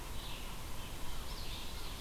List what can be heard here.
Red-eyed Vireo, Common Yellowthroat